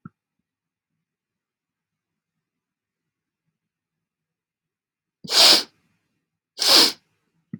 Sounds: Sniff